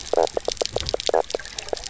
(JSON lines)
{"label": "biophony, knock croak", "recorder": "SoundTrap 300"}